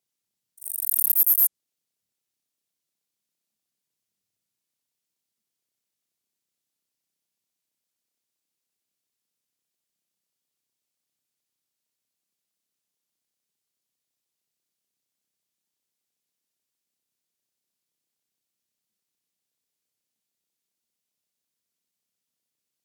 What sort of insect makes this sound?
orthopteran